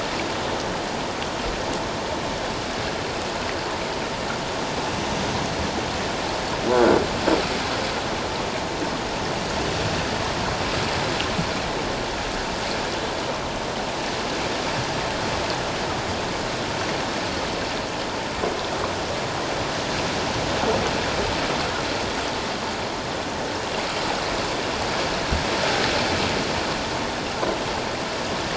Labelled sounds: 6.7	7.0	croaking sound likely from a nearby submerged object, 1.3 to 1.6 kHz

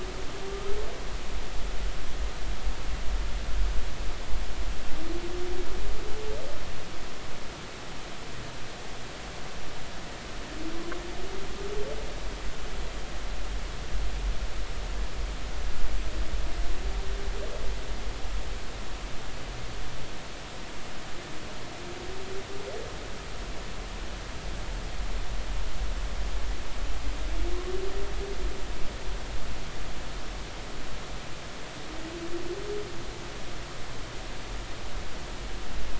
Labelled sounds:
0.5	0.8	humpback whale, 1.1 to 1.4 kHz

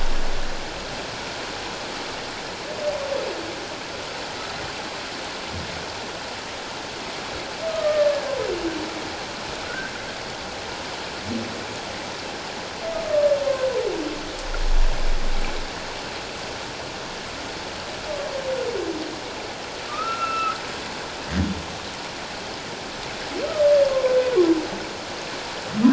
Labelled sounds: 7.7	8.1	humpback whale, 1.1 to 1.9 kHz
9.7	9.9	humpback whale, 1.3 to 1.7 kHz
13.1	13.3	humpback whale, 1.1 to 1.3 kHz
19.9	20.6	humpback whale, 1.1 to 2.8 kHz
23.9	24.2	humpback whale, 0.97 to 1.1 kHz

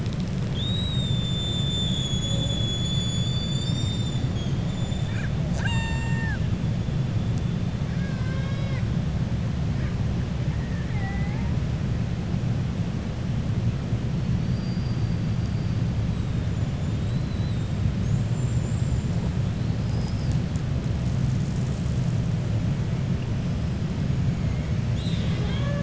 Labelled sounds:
5.4	6.4	killer whale, 0.68 to 7.9 kHz
7.9	8.9	killer whale, 0.55 to 5.7 kHz
10.5	11.5	killer whale, 0.75 to 2.4 kHz
14.3	15.1	killer whale, 4.5 to 5.7 kHz
16.9	19.1	killer whale, 3.5 to 7.6 kHz

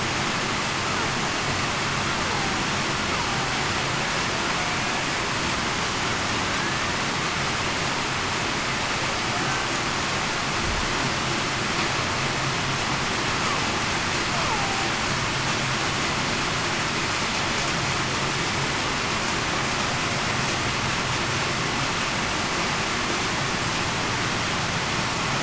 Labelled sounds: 6.5	6.9	killer whale, Bigg's (transient), 1.5 to 1.9 kHz
14.5	14.9	killer whale, Bigg's (transient), 0.75 to 1.0 kHz

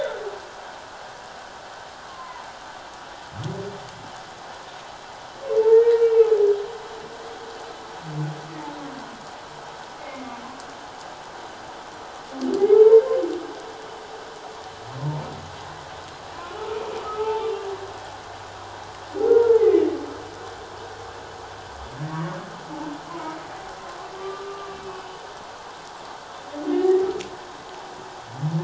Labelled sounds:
2.1	2.5	humpback whale, 0.81 to 1.2 kHz
5.7	6.3	humpback whale, 1.8 to 2.8 kHz
10.0	10.4	humpback whale, 2.1 to 2.5 kHz
12.8	13.2	humpback whale, 0.78 to 1.1 kHz
17.0	17.7	humpback whale, 0.78 to 2.8 kHz
19.3	19.6	humpback whale, 1.3 to 1.5 kHz
22.1	22.4	humpback whale, 1.1 to 1.3 kHz
23.1	23.3	humpback whale, 0.91 to 1.1 kHz
24.1	25.1	humpback whale, 1.1 to 2.7 kHz
26.7	27.1	humpback whale, 1.8 to 2.0 kHz

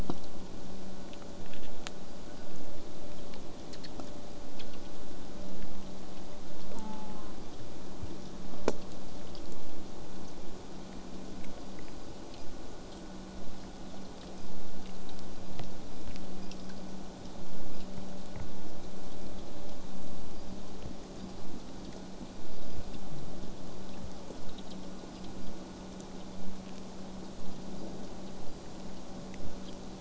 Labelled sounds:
6.7	7.3	killer whale, southern resident, J pod, call S04, 0.62 to 2.9 kHz

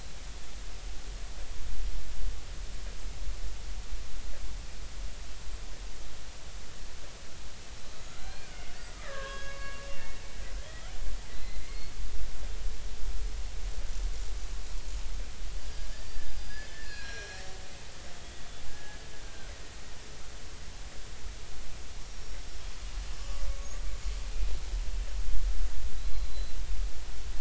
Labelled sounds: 8.2	9.8	killer whale, Bigg's (transient), 1.0 to 5.1 kHz
11.3	11.9	killer whale, Bigg's (transient), 1.9 to 4.4 kHz
15.6	17.4	killer whale, Bigg's (transient), 1.6 to 5.0 kHz
18.7	19.5	killer whale, Bigg's (transient), 1.4 to 1.7 kHz
22.0	22.5	killer whale, Bigg's (transient), 5.5 to 5.7 kHz
26.3	26.6	killer whale, Bigg's (transient), 3.9 to 4.1 kHz

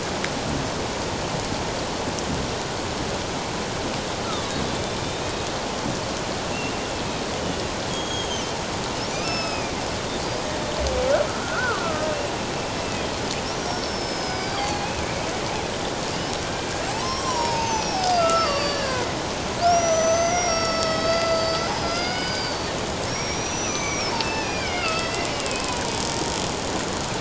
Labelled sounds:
4.2	4.5	killer whale, Bigg's (transient), 1.1 to 1.4 kHz
7.4	8.6	killer whale, Bigg's (transient), 2.8 to 6.7 kHz
9.2	9.8	killer whale, Bigg's (transient), 2.2 to 5.4 kHz
11.3	12.1	killer whale, Bigg's (transient), 1.1 to 1.6 kHz
13.7	15.0	killer whale, Bigg's (transient), 0.78 to 5.6 kHz
16.1	19.1	killer whale, Bigg's (transient), 0.78 to 8.0 kHz
19.6	22.7	killer whale, Bigg's (transient), 1.2 to 6.2 kHz
23.1	25.8	killer whale, Bigg's (transient), 1.2 to 6.2 kHz

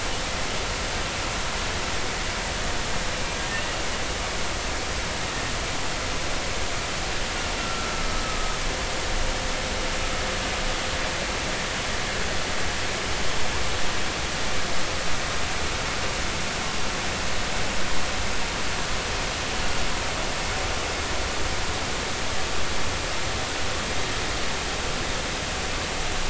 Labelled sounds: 7.6	8.2	humpback whale, 1.2 to 1.4 kHz

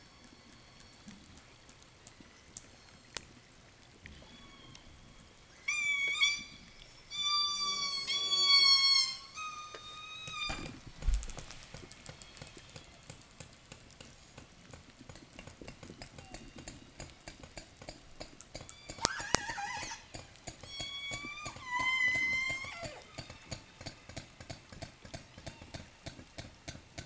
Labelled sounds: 1.8	3.5	killer whale, southern resident, 1.6 to 8.0 kHz
4.0	10.8	killer whale, southern resident, 0 to 8.0 kHz
11.6	17.7	killer whale, southern resident, 0 to 8.0 kHz
18.3	20.1	killer whale, southern resident, call S10, 0 to 8.0 kHz
20.5	23.4	killer whale, southern resident, 0.17 to 8.0 kHz
25.2	25.9	killer whale, southern resident, 0.89 to 6.9 kHz

